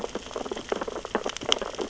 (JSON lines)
{"label": "biophony, sea urchins (Echinidae)", "recorder": "SoundTrap 600 or HydroMoth"}